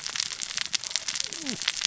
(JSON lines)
{"label": "biophony, cascading saw", "recorder": "SoundTrap 600 or HydroMoth"}